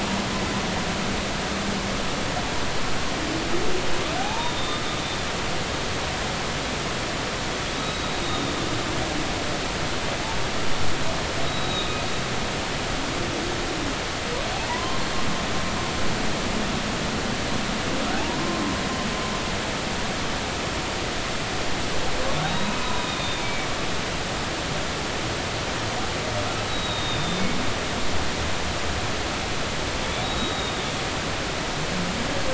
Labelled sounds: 4.2	4.8	humpback whale, 0.80 to 3.7 kHz
7.7	8.1	humpback whale, 3.7 to 4.0 kHz
11.4	11.9	humpback whale, 3.7 to 3.9 kHz
14.7	15.0	humpback whale, 0.80 to 1.1 kHz
18.1	18.6	humpback whale, 0.80 to 1.1 kHz
22.4	23.7	humpback whale, 0.93 to 3.9 kHz
26.7	27.4	humpback whale, 3.6 to 3.9 kHz
30.2	30.8	humpback whale, 3.6 to 3.9 kHz

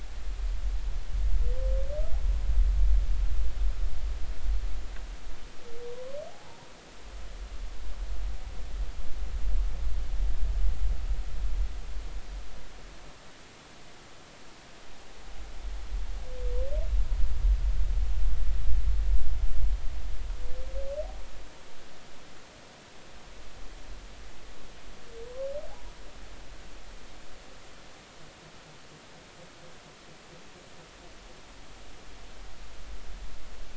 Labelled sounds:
5.9	6.6	humpback whale, 0.80 to 1.1 kHz

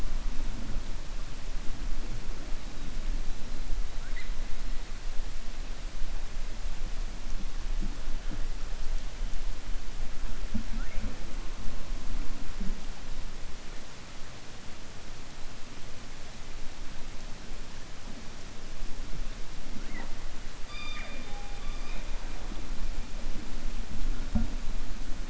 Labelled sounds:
20.6	22.1	killer whale, 0.53 to 4.9 kHz

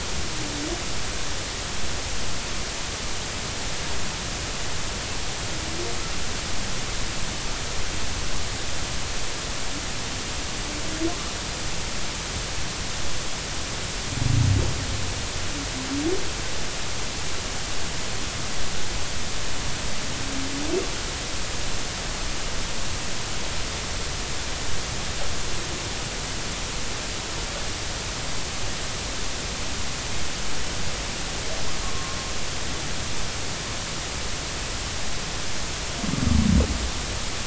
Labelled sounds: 31.8	32.2	humpback whale, 1.0 to 1.2 kHz

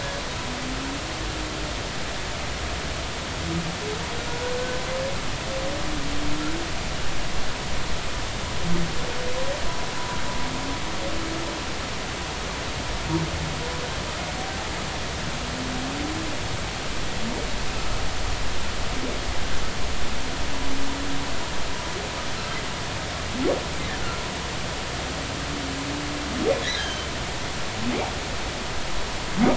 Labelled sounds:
26.7	27.1	humpback whale, 1.5 to 3.3 kHz

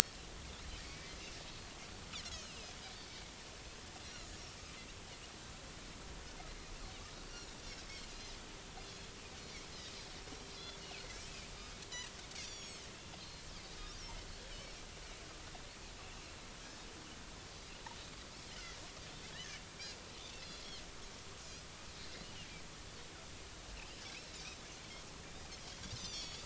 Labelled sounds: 0.8	1.1	Pacific white-sided dolphin, 2.1 to 2.4 kHz
2.3	2.6	Pacific white-sided dolphin, 2.5 to 6.0 kHz
7.2	7.5	Pacific white-sided dolphin, 4.1 to 4.6 kHz
10.8	11.1	Pacific white-sided dolphin, 4.2 to 4.5 kHz
12.4	12.8	Pacific white-sided dolphin, 3.2 to 7.1 kHz
13.2	13.5	Pacific white-sided dolphin, 4.0 to 4.4 kHz
13.8	14.0	Pacific white-sided dolphin, 3.6 to 3.8 kHz
18.5	18.8	Pacific white-sided dolphin, 1.8 to 2.1 kHz
22.2	22.5	Pacific white-sided dolphin, 2.7 to 3.1 kHz
24.1	24.4	Pacific white-sided dolphin, 3.7 to 4.1 kHz
26.0	26.4	Pacific white-sided dolphin, 3.2 to 7.4 kHz

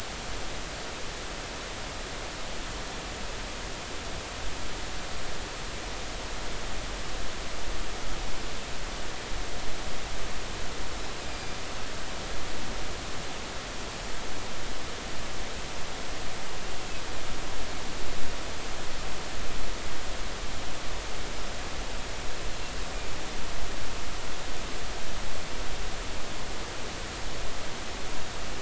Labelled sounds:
11.3	11.6	killer whale, northern resident, A clan, AA subclan, A05 pod, call N04, 2.3 to 4.9 kHz

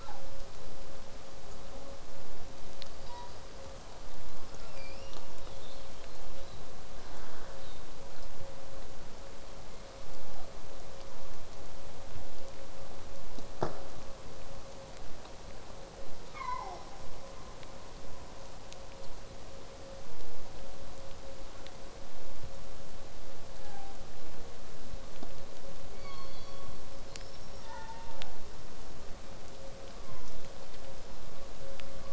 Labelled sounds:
0.0	0.2	killer whale, southern resident, 0.53 to 1.8 kHz
1.6	2.0	killer whale, southern resident, J pod, call S05, 0.15 to 1.7 kHz
4.6	6.6	killer whale, southern resident, 1.2 to 8.0 kHz
7.6	7.9	killer whale, southern resident, 3.2 to 4.6 kHz
9.7	10.6	killer whale, southern resident, J pod, call S01, 0.54 to 5.7 kHz
16.3	16.8	killer whale, southern resident, 0.19 to 5.6 kHz
18.0	23.0	vessel noise, 0 to 8.0 kHz
25.8	26.8	killer whale, southern resident, call S17, 0.89 to 6.9 kHz
26.9	28.4	killer whale, southern resident, L pod, call S36, 0.43 to 8.0 kHz
29.9	30.3	killer whale, southern resident, 0.79 to 2.4 kHz

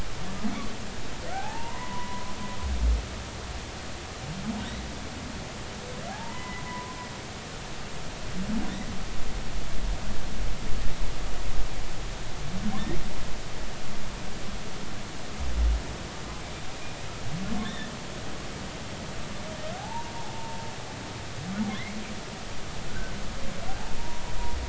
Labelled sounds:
1.3	2.3	humpback whale, 0.80 to 1.8 kHz
6.1	7.0	humpback whale, 0.80 to 2.0 kHz
17.6	17.9	humpback whale, 1.7 to 3.8 kHz
19.8	20.6	humpback whale, 0.80 to 0.99 kHz
21.7	22.0	humpback whale, 1.9 to 2.3 kHz
22.9	24.3	humpback whale, 0.80 to 1.6 kHz

